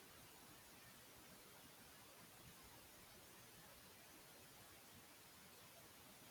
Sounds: Sniff